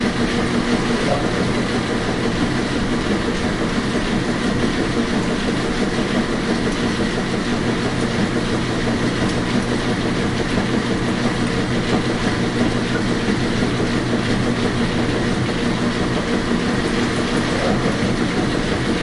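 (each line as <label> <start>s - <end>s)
A washing machine is running at high speed. 0.0s - 19.0s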